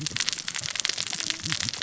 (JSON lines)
{"label": "biophony, cascading saw", "recorder": "SoundTrap 600 or HydroMoth"}